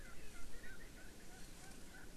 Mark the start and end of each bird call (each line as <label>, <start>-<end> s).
Erckel's Francolin (Pternistis erckelii), 0.3-0.5 s
Erckel's Francolin (Pternistis erckelii), 0.9-2.1 s